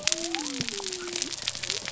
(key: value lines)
label: biophony
recorder: SoundTrap 300